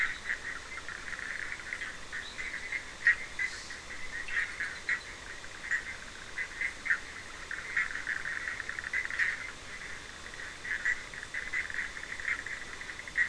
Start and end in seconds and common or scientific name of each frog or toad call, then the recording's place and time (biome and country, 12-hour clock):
0.0	13.2	Bischoff's tree frog
2.2	2.6	fine-lined tree frog
Atlantic Forest, Brazil, 9:30pm